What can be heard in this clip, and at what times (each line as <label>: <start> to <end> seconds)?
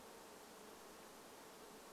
insect buzz: 0 to 2 seconds